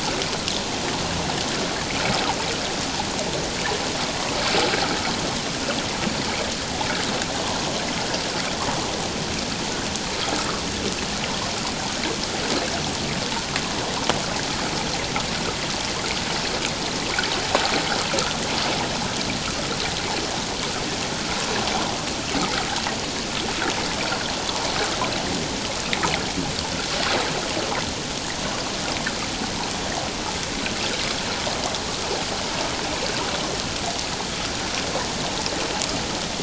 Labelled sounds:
10.4	10.6	water noise, 1.1 to 1.4 kHz

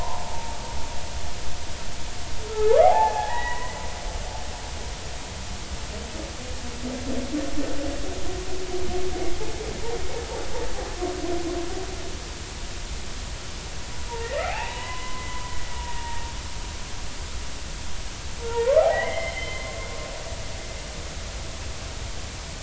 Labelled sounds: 2.5	3.8	humpback whale, 0.80 to 2.0 kHz
14.1	15.4	humpback whale, 0.80 to 3.0 kHz
15.8	16.2	humpback whale, 0.86 to 0.99 kHz
18.4	19.7	humpback whale, 0.80 to 3.3 kHz

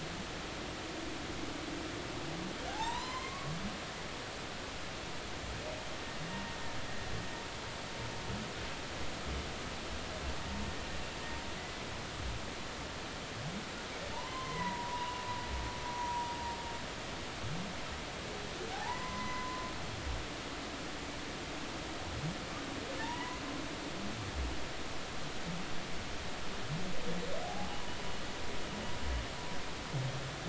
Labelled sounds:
2.7	3.5	humpback whale, 0.80 to 4.2 kHz
11.6	11.8	humpback whale, 1.95 to 2.05 kHz
14.1	15.2	humpback whale, 0.86 to 4.1 kHz
15.9	16.3	humpback whale, 0.90 to 0.99 kHz
18.7	19.6	humpback whale, 0.80 to 2.2 kHz
23.0	23.4	humpback whale, 0.83 to 2.1 kHz
27.4	27.7	humpback whale, 0.80 to 0.90 kHz

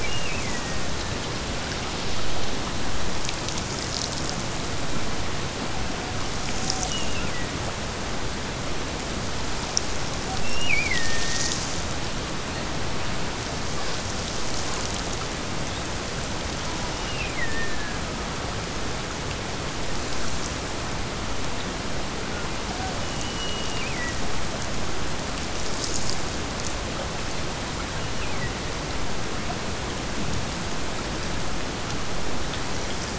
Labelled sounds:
0.0	1.2	killer whale, Bigg's (transient), Gulf of Alaska transient, 1.6 to 2.9 kHz
6.8	7.6	killer whale, Bigg's (transient), Gulf of Alaska transient, 1.8 to 3.1 kHz
10.4	11.7	killer whale, Bigg's (transient), Gulf of Alaska transient, 1.6 to 3.0 kHz
16.9	18.0	killer whale, Bigg's (transient), Gulf of Alaska transient, 1.4 to 3.0 kHz
22.9	24.3	killer whale, Bigg's (transient), Gulf of Alaska transient, 1.7 to 3.1 kHz
27.9	28.7	killer whale, Bigg's (transient), Gulf of Alaska transient, 1.6 to 3.1 kHz

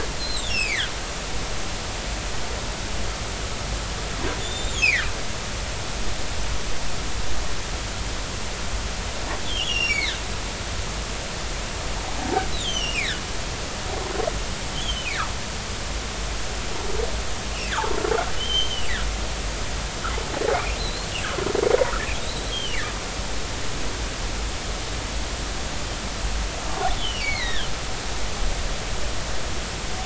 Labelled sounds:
0.2	0.9	humpback whale, 1.4 to 5.6 kHz
4.4	5.1	humpback whale, 1.4 to 7.5 kHz
9.4	10.2	humpback whale, 1.5 to 5.8 kHz
12.5	13.9	humpback whale, 1.4 to 6.4 kHz
14.8	15.2	humpback whale, 2.0 to 3.5 kHz
17.7	17.9	humpback whale, 0.80 to 1.9 kHz
18.4	18.9	humpback whale, 2.6 to 6.3 kHz
20.8	21.1	humpback whale, 3.8 to 4.4 kHz
22.2	22.8	humpback whale, 2.7 to 4.2 kHz
27.0	27.7	humpback whale, 1.5 to 4.7 kHz

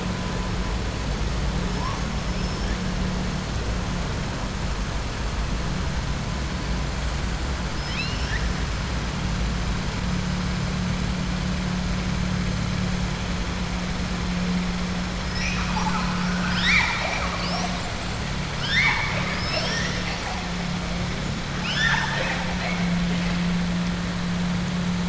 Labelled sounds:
2.3	2.7	killer whale, southern resident, 5.2 to 5.8 kHz
7.7	8.5	killer whale, southern resident, 1.7 to 5.9 kHz
18.5	19.4	killer whale, southern resident, 0.90 to 6.0 kHz
21.5	22.8	killer whale, southern resident, 0.54 to 7.0 kHz

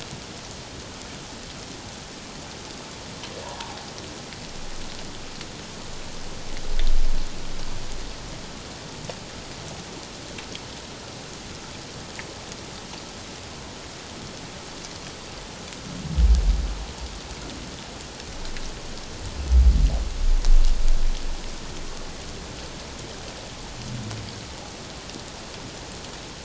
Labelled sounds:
3.4	3.8	humpback whale, 0.78 to 1.2 kHz

